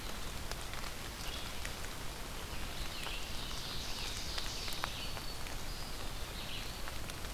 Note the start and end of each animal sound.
[0.00, 7.33] Red-eyed Vireo (Vireo olivaceus)
[2.67, 5.12] Ovenbird (Seiurus aurocapilla)
[4.64, 5.56] Black-throated Green Warbler (Setophaga virens)
[5.43, 6.93] Eastern Wood-Pewee (Contopus virens)

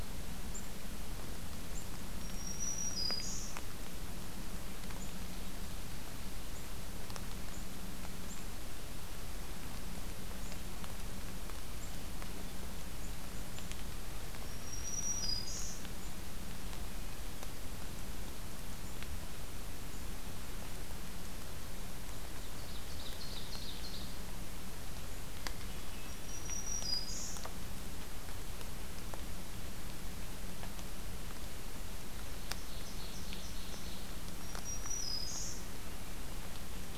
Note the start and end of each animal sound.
[2.18, 3.59] Black-throated Green Warbler (Setophaga virens)
[14.37, 15.85] Black-throated Green Warbler (Setophaga virens)
[16.75, 17.56] Hermit Thrush (Catharus guttatus)
[22.23, 24.17] Ovenbird (Seiurus aurocapilla)
[25.33, 26.39] Hermit Thrush (Catharus guttatus)
[26.12, 27.42] Black-throated Green Warbler (Setophaga virens)
[32.36, 34.06] Ovenbird (Seiurus aurocapilla)
[34.36, 35.62] Black-throated Green Warbler (Setophaga virens)

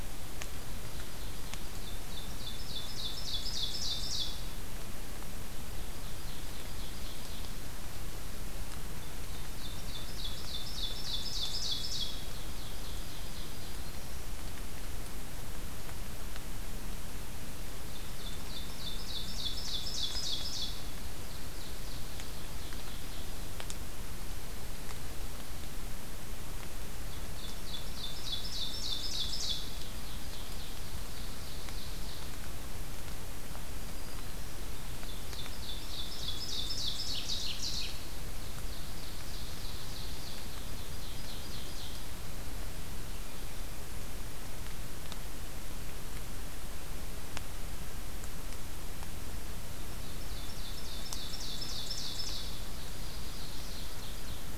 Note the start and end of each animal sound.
[0.37, 4.62] Ovenbird (Seiurus aurocapilla)
[5.58, 7.61] Ovenbird (Seiurus aurocapilla)
[8.94, 13.88] Ovenbird (Seiurus aurocapilla)
[12.97, 14.42] Black-throated Green Warbler (Setophaga virens)
[17.70, 23.61] Ovenbird (Seiurus aurocapilla)
[26.92, 32.44] Ovenbird (Seiurus aurocapilla)
[33.64, 34.70] Black-throated Green Warbler (Setophaga virens)
[34.68, 42.23] Ovenbird (Seiurus aurocapilla)
[49.87, 54.58] Ovenbird (Seiurus aurocapilla)
[52.74, 53.89] Black-throated Green Warbler (Setophaga virens)

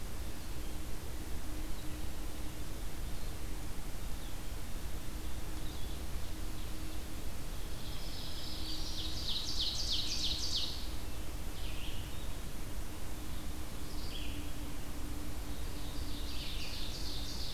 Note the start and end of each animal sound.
[5.46, 7.02] Ovenbird (Seiurus aurocapilla)
[5.59, 6.09] Blue-headed Vireo (Vireo solitarius)
[7.37, 10.96] Ovenbird (Seiurus aurocapilla)
[7.89, 9.13] Black-throated Green Warbler (Setophaga virens)
[11.21, 17.53] Red-eyed Vireo (Vireo olivaceus)
[15.31, 17.53] Ovenbird (Seiurus aurocapilla)

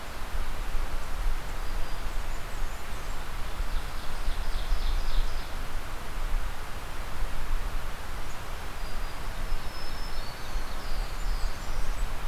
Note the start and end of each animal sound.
[1.25, 2.09] Black-throated Green Warbler (Setophaga virens)
[1.94, 3.22] Blackburnian Warbler (Setophaga fusca)
[3.54, 5.60] Ovenbird (Seiurus aurocapilla)
[8.71, 10.71] Black-throated Green Warbler (Setophaga virens)
[10.14, 11.69] Black-throated Blue Warbler (Setophaga caerulescens)
[10.82, 12.28] Blackburnian Warbler (Setophaga fusca)

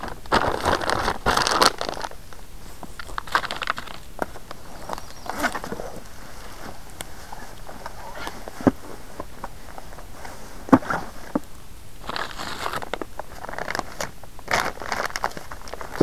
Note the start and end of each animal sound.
[4.49, 5.71] Yellow-rumped Warbler (Setophaga coronata)

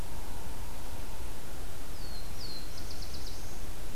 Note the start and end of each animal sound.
[1.73, 3.80] Black-throated Blue Warbler (Setophaga caerulescens)

